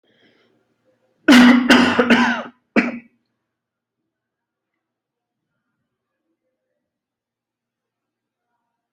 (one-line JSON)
{"expert_labels": [{"quality": "poor", "cough_type": "unknown", "dyspnea": false, "wheezing": false, "stridor": false, "choking": false, "congestion": false, "nothing": true, "diagnosis": "healthy cough", "severity": "unknown"}], "age": 29, "gender": "male", "respiratory_condition": false, "fever_muscle_pain": false, "status": "symptomatic"}